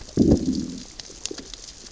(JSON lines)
{"label": "biophony, growl", "recorder": "SoundTrap 600 or HydroMoth"}